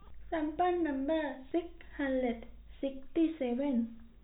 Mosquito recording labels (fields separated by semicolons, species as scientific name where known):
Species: no mosquito; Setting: cup